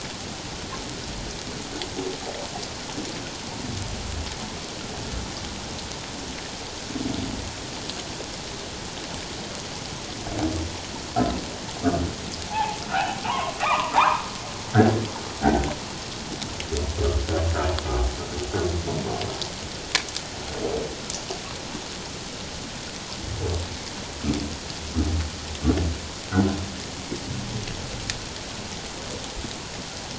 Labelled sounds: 12.5	14.2	humpback whale, 0.78 to 1.4 kHz
15.4	15.7	humpback whale, 1.4 to 1.7 kHz

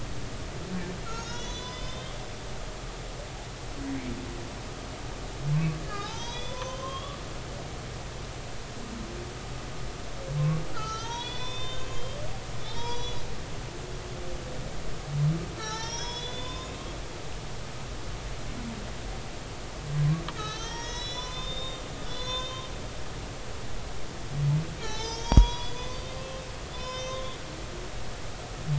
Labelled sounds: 1.0	2.2	humpback whale, 0.96 to 6.8 kHz
5.8	7.2	humpback whale, 0.80 to 6.3 kHz
10.7	12.0	humpback whale, 0.83 to 6.9 kHz
12.6	13.2	humpback whale, 0.80 to 6.4 kHz
15.5	16.9	humpback whale, 0.83 to 7.0 kHz
20.3	22.7	humpback whale, 0.90 to 6.8 kHz
24.8	26.2	humpback whale, 0.80 to 6.7 kHz
26.7	27.4	humpback whale, 0.96 to 6.3 kHz

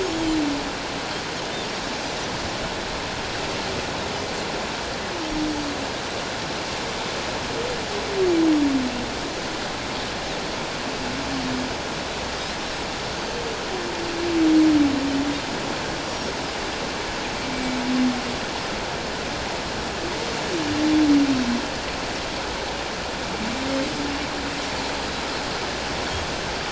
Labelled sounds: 16.1	16.3	Pacific white-sided dolphin, 5.3 to 5.8 kHz
17.5	17.8	Pacific white-sided dolphin, 2.2 to 2.3 kHz

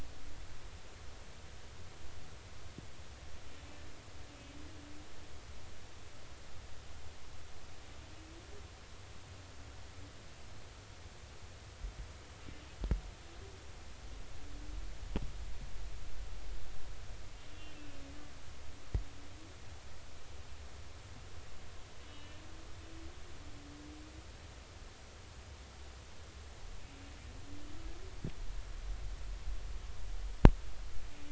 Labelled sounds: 17.4	18.0	humpback whale, 2.5 to 3.5 kHz
22.1	22.4	humpback whale, 2.9 to 3.1 kHz

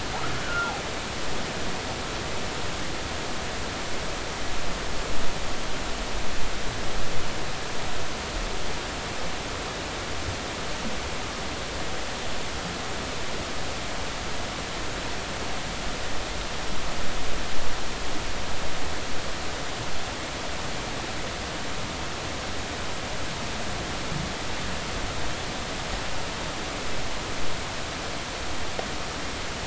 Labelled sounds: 0.3	0.7	humpback whale, 1.3 to 1.6 kHz

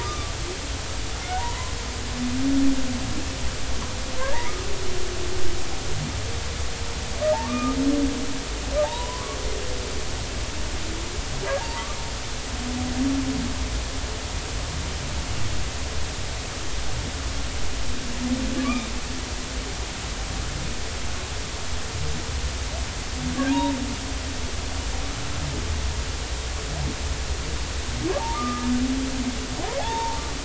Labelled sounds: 0.0	0.3	humpback whale, 1.1 to 1.3 kHz
1.4	1.8	humpback whale, 0.90 to 1.1 kHz
4.3	4.6	humpback whale, 1.8 to 2.3 kHz
7.4	7.8	humpback whale, 1.1 to 1.3 kHz
8.8	9.4	humpback whale, 0.80 to 1.2 kHz
11.6	11.9	humpback whale, 0.80 to 0.99 kHz
18.6	18.9	humpback whale, 2.2 to 2.5 kHz
23.5	23.8	humpback whale, 0.86 to 0.99 kHz
28.2	28.7	humpback whale, 0.80 to 1.3 kHz
29.8	30.2	humpback whale, 0.80 to 0.99 kHz

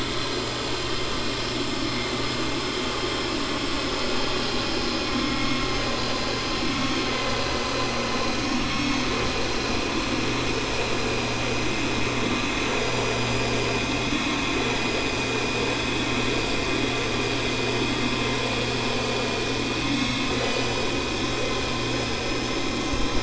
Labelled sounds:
1.7	2.4	vessel noise, 4.2 to 6.0 kHz
7.5	9.2	vessel noise, 1.1 to 6.7 kHz
14.0	14.6	vessel noise, 1.1 to 3.4 kHz

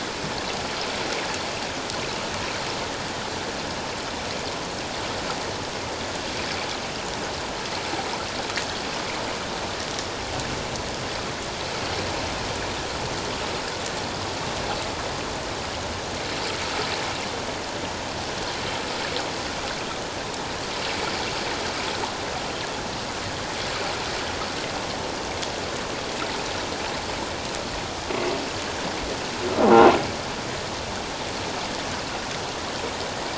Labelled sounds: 29.6	29.9	croaking sound likely from a nearby submerged object, 0.78 to 0.84 kHz

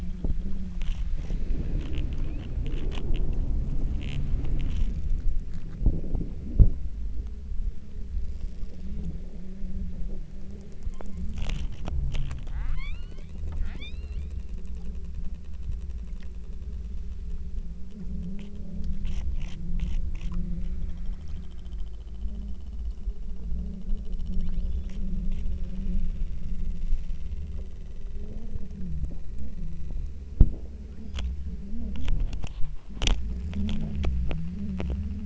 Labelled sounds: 2.3	2.7	killer whale, southern Alaska resident, 2.1 to 4.6 kHz
10.9	11.2	killer whale, southern Alaska resident, 1.8 to 3.6 kHz
12.6	14.6	killer whale, southern Alaska resident, 0.62 to 6.2 kHz
24.4	25.1	killer whale, southern Alaska resident, 0.74 to 7.1 kHz
30.9	31.2	killer whale, southern Alaska resident, 1.0 to 3.4 kHz

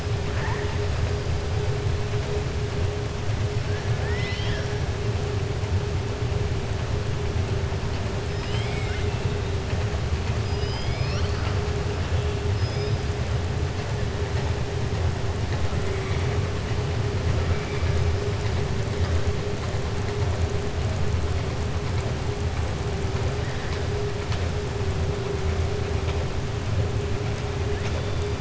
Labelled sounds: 3.9	4.7	killer whale, southern resident, 0.97 to 5.7 kHz
8.2	9.1	killer whale, southern resident, 1.5 to 8.0 kHz
10.4	11.6	killer whale, southern resident, 1.1 to 5.7 kHz

